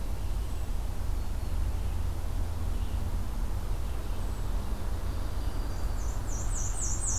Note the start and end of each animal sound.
0.0s-7.2s: Red-eyed Vireo (Vireo olivaceus)
0.3s-0.8s: Hermit Thrush (Catharus guttatus)
1.0s-1.6s: Black-throated Green Warbler (Setophaga virens)
4.1s-4.6s: Hermit Thrush (Catharus guttatus)
4.9s-6.2s: Black-throated Green Warbler (Setophaga virens)
5.7s-7.2s: Black-and-white Warbler (Mniotilta varia)

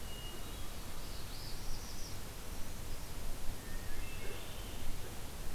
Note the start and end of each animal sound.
0.0s-0.9s: Hermit Thrush (Catharus guttatus)
0.9s-2.2s: Northern Parula (Setophaga americana)
3.6s-4.8s: Hermit Thrush (Catharus guttatus)

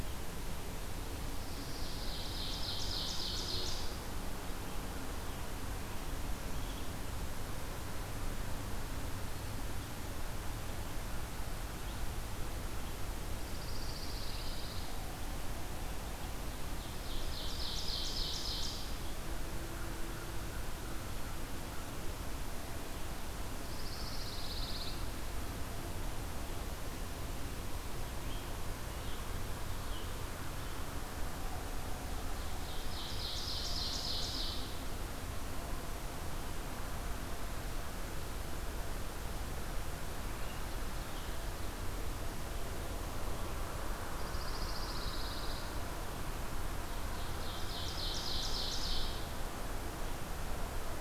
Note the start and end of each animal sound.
1.5s-2.9s: Pine Warbler (Setophaga pinus)
1.6s-4.1s: Ovenbird (Seiurus aurocapilla)
13.2s-15.0s: Pine Warbler (Setophaga pinus)
16.6s-19.0s: Ovenbird (Seiurus aurocapilla)
23.6s-25.1s: Pine Warbler (Setophaga pinus)
27.9s-30.3s: Red-eyed Vireo (Vireo olivaceus)
32.4s-34.8s: Ovenbird (Seiurus aurocapilla)
44.1s-45.7s: Pine Warbler (Setophaga pinus)
46.9s-49.3s: Ovenbird (Seiurus aurocapilla)

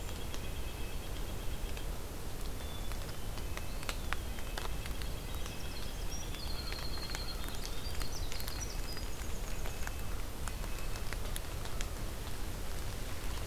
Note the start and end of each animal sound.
0.0s-1.0s: Red-breasted Nuthatch (Sitta canadensis)
0.0s-1.9s: White-breasted Nuthatch (Sitta carolinensis)
2.6s-3.5s: Black-capped Chickadee (Poecile atricapillus)
3.4s-7.9s: Red-breasted Nuthatch (Sitta canadensis)
3.6s-4.5s: Eastern Wood-Pewee (Contopus virens)
4.7s-10.0s: Winter Wren (Troglodytes hiemalis)
6.4s-7.9s: American Crow (Corvus brachyrhynchos)
8.4s-11.1s: Red-breasted Nuthatch (Sitta canadensis)
10.3s-11.2s: Black-throated Green Warbler (Setophaga virens)

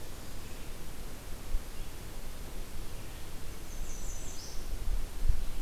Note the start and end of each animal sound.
3.5s-4.7s: American Redstart (Setophaga ruticilla)

